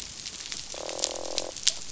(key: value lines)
label: biophony, croak
recorder: SoundTrap 500